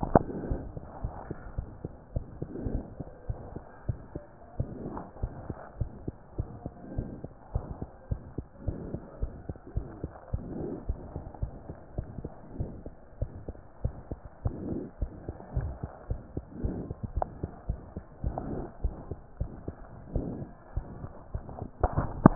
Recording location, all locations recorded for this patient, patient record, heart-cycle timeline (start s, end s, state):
pulmonary valve (PV)
aortic valve (AV)+pulmonary valve (PV)+tricuspid valve (TV)+mitral valve (MV)
#Age: Child
#Sex: Female
#Height: 116.0 cm
#Weight: 19.0 kg
#Pregnancy status: False
#Murmur: Present
#Murmur locations: aortic valve (AV)+mitral valve (MV)+pulmonary valve (PV)+tricuspid valve (TV)
#Most audible location: pulmonary valve (PV)
#Systolic murmur timing: Early-systolic
#Systolic murmur shape: Plateau
#Systolic murmur grading: II/VI
#Systolic murmur pitch: Low
#Systolic murmur quality: Harsh
#Diastolic murmur timing: nan
#Diastolic murmur shape: nan
#Diastolic murmur grading: nan
#Diastolic murmur pitch: nan
#Diastolic murmur quality: nan
#Outcome: Abnormal
#Campaign: 2015 screening campaign
0.00	0.49	unannotated
0.49	0.57	S1
0.57	0.74	systole
0.74	0.84	S2
0.84	1.02	diastole
1.02	1.16	S1
1.16	1.30	systole
1.30	1.38	S2
1.38	1.56	diastole
1.56	1.70	S1
1.70	1.84	systole
1.84	1.94	S2
1.94	2.14	diastole
2.14	2.26	S1
2.26	2.40	systole
2.40	2.50	S2
2.50	2.68	diastole
2.68	2.84	S1
2.84	2.96	systole
2.96	3.06	S2
3.06	3.24	diastole
3.24	3.38	S1
3.38	3.52	systole
3.52	3.62	S2
3.62	3.84	diastole
3.84	4.00	S1
4.00	4.15	systole
4.15	4.24	S2
4.24	4.54	diastole
4.54	4.68	S1
4.68	4.91	systole
4.91	5.01	S2
5.01	5.18	diastole
5.18	5.32	S1
5.32	5.46	systole
5.46	5.56	S2
5.56	5.76	diastole
5.76	5.90	S1
5.90	6.04	systole
6.04	6.14	S2
6.14	6.34	diastole
6.34	6.48	S1
6.48	6.62	systole
6.62	6.72	S2
6.72	6.92	diastole
6.92	7.06	S1
7.06	7.22	systole
7.22	7.30	S2
7.30	7.54	diastole
7.54	7.68	S1
7.68	7.80	systole
7.80	7.88	S2
7.88	8.10	diastole
8.10	8.20	S1
8.20	8.34	systole
8.34	8.44	S2
8.44	8.66	diastole
8.66	8.80	S1
8.80	8.92	systole
8.92	9.02	S2
9.02	9.18	diastole
9.18	9.34	S1
9.34	9.48	systole
9.48	9.56	S2
9.56	9.72	diastole
9.72	9.88	S1
9.88	10.02	systole
10.02	10.14	S2
10.14	10.34	diastole
10.34	10.46	S1
10.46	10.58	systole
10.58	10.72	S2
10.72	10.88	diastole
10.88	11.00	S1
11.00	11.14	systole
11.14	11.24	S2
11.24	11.42	diastole
11.42	11.54	S1
11.54	11.70	systole
11.70	11.76	S2
11.76	11.96	diastole
11.96	12.10	S1
12.10	12.22	systole
12.22	12.32	S2
12.32	12.56	diastole
12.56	12.70	S1
12.70	12.86	systole
12.86	12.96	S2
12.96	13.18	diastole
13.18	13.32	S1
13.32	13.48	systole
13.48	13.58	S2
13.58	13.80	diastole
13.80	13.96	S1
13.96	14.09	systole
14.09	14.18	S2
14.18	14.42	diastole
14.42	14.58	S1
14.58	14.70	systole
14.70	14.81	S2
14.81	15.02	diastole
15.02	15.14	S1
15.14	15.28	systole
15.28	15.36	S2
15.36	15.54	diastole
15.54	15.72	S1
15.72	15.82	systole
15.82	15.90	S2
15.90	16.10	diastole
16.10	16.22	S1
16.22	16.36	systole
16.36	16.44	S2
16.44	16.60	diastole
16.60	16.76	S1
16.76	16.88	systole
16.88	16.96	S2
16.96	17.14	diastole
17.14	17.28	S1
17.28	17.41	systole
17.41	17.50	S2
17.50	17.66	diastole
17.66	17.80	S1
17.80	17.92	systole
17.92	18.02	S2
18.02	18.24	diastole
18.24	22.35	unannotated